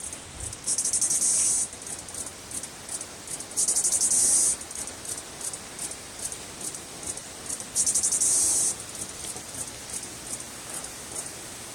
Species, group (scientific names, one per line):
Pauropsalta mneme
Cicadidae